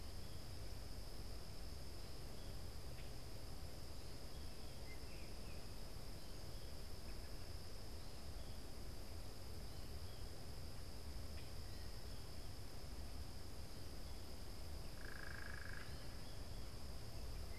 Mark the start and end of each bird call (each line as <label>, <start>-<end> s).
Baltimore Oriole (Icterus galbula), 4.5-5.9 s
Common Grackle (Quiscalus quiscula), 11.1-17.6 s
unidentified bird, 14.8-16.0 s